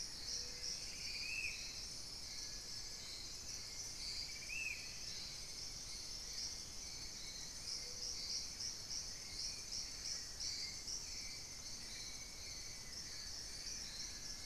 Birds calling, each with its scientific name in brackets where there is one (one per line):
Buff-throated Woodcreeper (Xiphorhynchus guttatus)
Spot-winged Antshrike (Pygiptila stellaris)
Hauxwell's Thrush (Turdus hauxwelli)